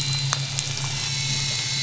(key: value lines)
label: anthrophony, boat engine
recorder: SoundTrap 500